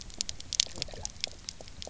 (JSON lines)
{"label": "biophony, pulse", "recorder": "SoundTrap 300"}